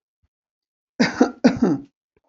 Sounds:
Cough